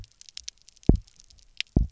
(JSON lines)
{"label": "biophony, double pulse", "recorder": "SoundTrap 300"}